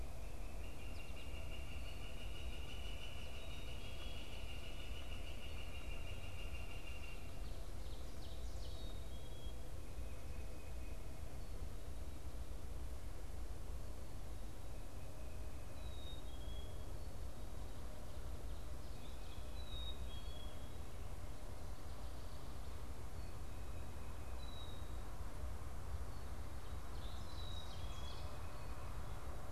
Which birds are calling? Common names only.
Northern Flicker, Ovenbird, Tufted Titmouse, Black-capped Chickadee